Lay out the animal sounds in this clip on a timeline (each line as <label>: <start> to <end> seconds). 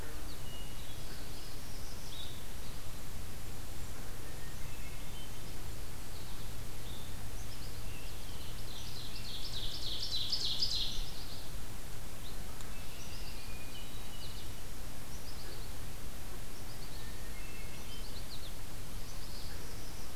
American Goldfinch (Spinus tristis): 0.0 to 0.4 seconds
Hermit Thrush (Catharus guttatus): 0.3 to 1.3 seconds
Northern Parula (Setophaga americana): 0.9 to 2.1 seconds
Blue-headed Vireo (Vireo solitarius): 2.0 to 2.5 seconds
Hermit Thrush (Catharus guttatus): 4.6 to 5.5 seconds
American Goldfinch (Spinus tristis): 6.0 to 6.5 seconds
American Goldfinch (Spinus tristis): 7.2 to 7.9 seconds
Scarlet Tanager (Piranga olivacea): 7.4 to 9.4 seconds
Ovenbird (Seiurus aurocapilla): 8.5 to 11.1 seconds
American Goldfinch (Spinus tristis): 10.9 to 11.5 seconds
Red-winged Blackbird (Agelaius phoeniceus): 12.7 to 13.7 seconds
American Goldfinch (Spinus tristis): 12.9 to 13.6 seconds
Hermit Thrush (Catharus guttatus): 13.6 to 14.5 seconds
American Goldfinch (Spinus tristis): 14.1 to 14.5 seconds
American Goldfinch (Spinus tristis): 15.0 to 15.8 seconds
American Goldfinch (Spinus tristis): 16.5 to 17.2 seconds
Hermit Thrush (Catharus guttatus): 17.0 to 18.1 seconds
American Goldfinch (Spinus tristis): 17.7 to 18.6 seconds
American Goldfinch (Spinus tristis): 19.0 to 19.4 seconds
Northern Parula (Setophaga americana): 19.1 to 20.1 seconds